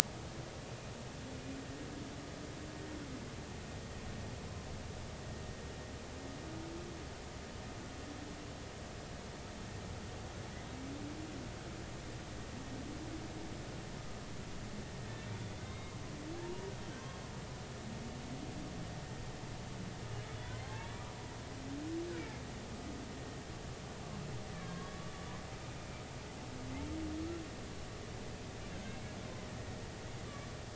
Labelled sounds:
15.3	15.9	humpback whale, 2.0 to 3.8 kHz
16.3	16.7	humpback whale, 0.80 to 0.99 kHz
20.6	20.9	humpback whale, 0.80 to 0.96 kHz
24.5	25.1	humpback whale, 1.0 to 1.2 kHz
28.7	29.0	humpback whale, 1.5 to 1.8 kHz

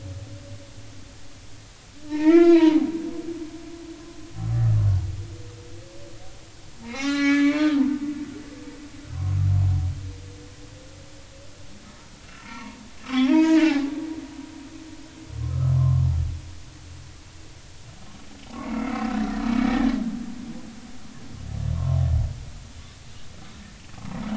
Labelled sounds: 2.1	2.9	humpback whale, 0.80 to 4.1 kHz
6.8	7.9	humpback whale, 0.80 to 4.3 kHz
9.1	9.4	humpback whale, 0.99 to 1.2 kHz
12.4	13.9	humpback whale, 0.80 to 3.5 kHz
15.5	16.1	humpback whale, 0.99 to 1.4 kHz
18.6	19.1	humpback whale, 1.2 to 2.3 kHz
21.7	22.0	humpback whale, 0.90 to 1.2 kHz

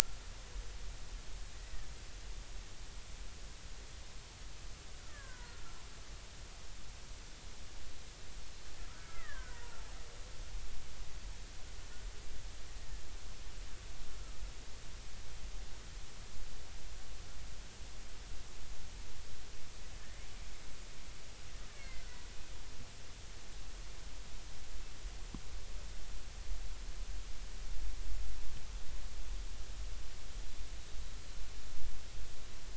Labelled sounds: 5.1	5.6	killer whale, Bigg's (transient), 0.90 to 1.9 kHz
8.9	9.8	killer whale, Bigg's (transient), 0.99 to 2.1 kHz
21.7	22.2	killer whale, Bigg's (transient), 1.4 to 2.3 kHz

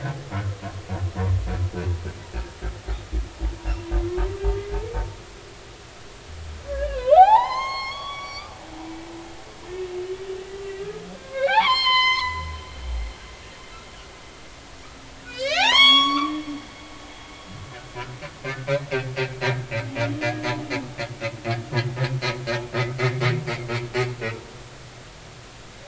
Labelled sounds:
6.7	8.5	humpback whale, 0.80 to 6.5 kHz
10.4	12.5	humpback whale, 0.80 to 7.5 kHz
15.2	16.3	humpback whale, 0.80 to 7.8 kHz
20.2	20.5	humpback whale, 1.6 to 1.8 kHz
24.1	24.4	humpback whale, 1.2 to 1.5 kHz

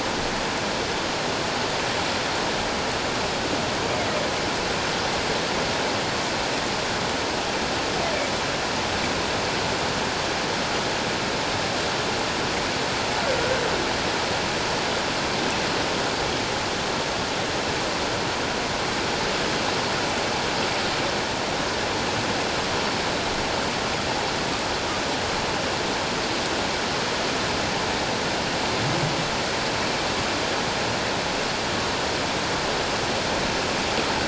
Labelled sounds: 13.4	13.6	humpback whale, 1.4 to 1.7 kHz

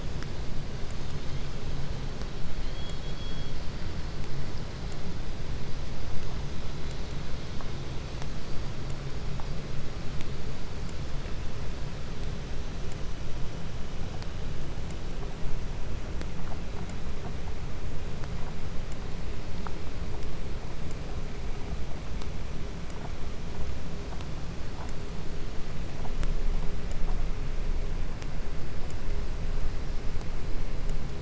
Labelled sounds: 2.4	4.0	killer whale, southern resident, 2.0 to 6.8 kHz

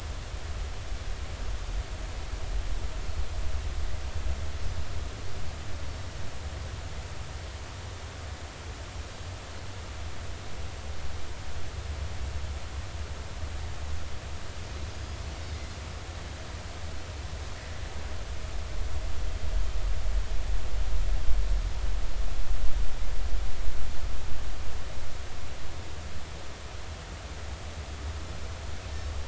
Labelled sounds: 14.9	15.2	Pacific white-sided dolphin, 4.8 to 5.1 kHz

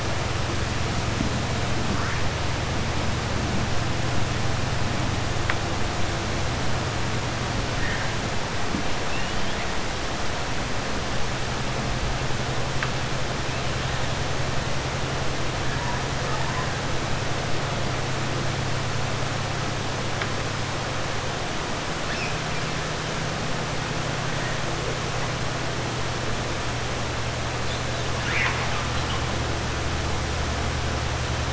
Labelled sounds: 28.1	28.9	killer whale, 0.94 to 4.1 kHz

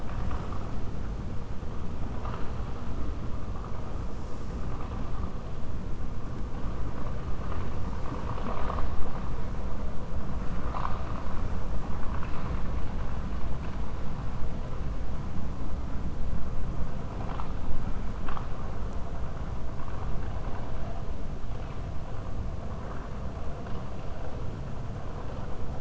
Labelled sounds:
12.0	12.7	vessel noise, 1.1 to 4.4 kHz

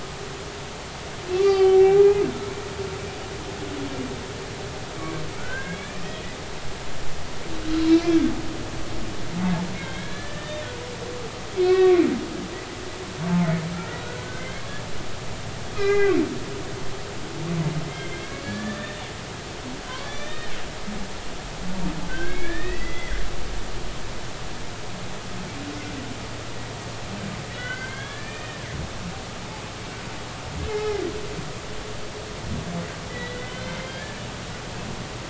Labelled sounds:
1.4	2.2	humpback whale, 0.80 to 4.8 kHz
5.4	6.1	humpback whale, 1.4 to 2.6 kHz
7.7	8.2	humpback whale, 2.2 to 4.2 kHz
9.7	10.6	humpback whale, 1.5 to 3.6 kHz
11.5	12.0	humpback whale, 1.1 to 2.7 kHz
14.0	14.6	humpback whale, 1.4 to 2.2 kHz
15.7	16.2	humpback whale, 0.80 to 2.6 kHz
17.9	19.0	humpback whale, 1.6 to 3.7 kHz
19.9	21.5	humpback whale, 1.7 to 4.7 kHz
22.1	23.2	humpback whale, 1.4 to 3.5 kHz
27.5	28.7	humpback whale, 1.3 to 3.5 kHz
30.7	31.1	humpback whale, 0.80 to 2.2 kHz
33.1	34.2	humpback whale, 1.5 to 3.5 kHz

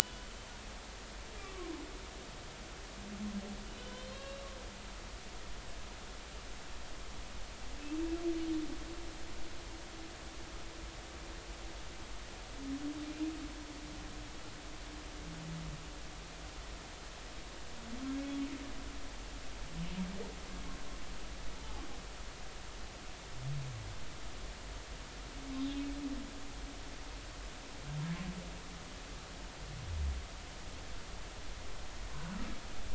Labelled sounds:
1.0	1.7	humpback whale, 1.0 to 3.1 kHz
3.8	4.4	humpback whale, 1.0 to 4.4 kHz
25.5	25.8	humpback whale, 3.7 to 3.9 kHz

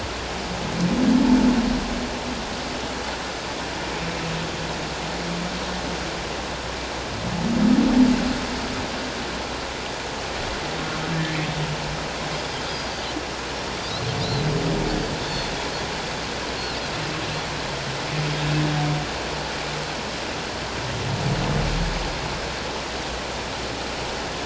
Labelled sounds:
12.7	12.9	Pacific white-sided dolphin, 4.8 to 5.0 kHz
14.2	14.5	Pacific white-sided dolphin, 3.5 to 4.2 kHz
15.2	15.5	Pacific white-sided dolphin, 3.4 to 3.6 kHz

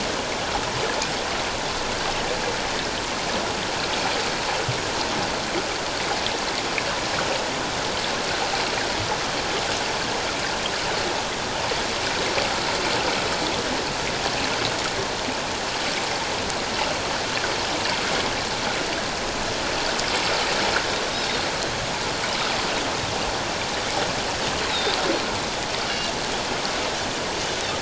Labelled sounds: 21.1	21.4	Pacific white-sided dolphin, 3.6 to 3.9 kHz
24.7	25.0	Pacific white-sided dolphin, 3.5 to 4.0 kHz

